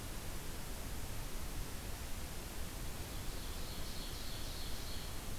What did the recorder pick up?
Ovenbird